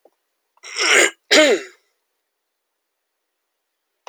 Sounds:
Throat clearing